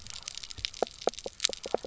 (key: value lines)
label: biophony, knock croak
recorder: SoundTrap 300